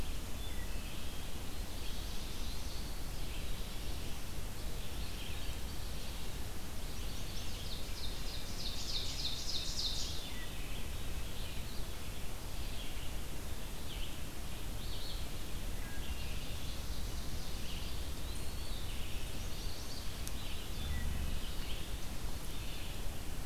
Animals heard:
Black-throated Blue Warbler (Setophaga caerulescens), Wood Thrush (Hylocichla mustelina), Eastern Wood-Pewee (Contopus virens), Chestnut-sided Warbler (Setophaga pensylvanica), Red-eyed Vireo (Vireo olivaceus), Ovenbird (Seiurus aurocapilla)

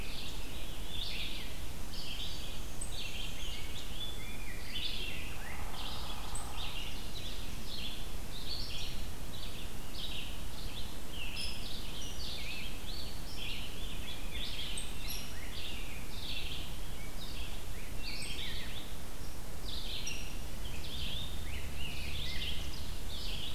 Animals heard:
Black-and-white Warbler (Mniotilta varia), unidentified call, Rose-breasted Grosbeak (Pheucticus ludovicianus), Hairy Woodpecker (Dryobates villosus), Red-eyed Vireo (Vireo olivaceus)

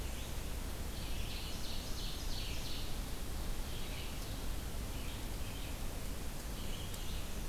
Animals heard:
Black-and-white Warbler (Mniotilta varia), Red-eyed Vireo (Vireo olivaceus), Ovenbird (Seiurus aurocapilla)

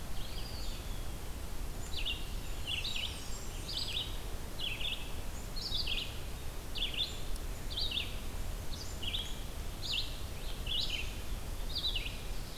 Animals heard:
Black-capped Chickadee (Poecile atricapillus), Eastern Wood-Pewee (Contopus virens), Blackburnian Warbler (Setophaga fusca), Red-eyed Vireo (Vireo olivaceus)

